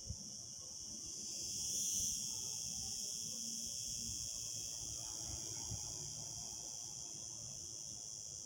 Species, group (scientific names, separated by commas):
Cicada barbara, Cicadidae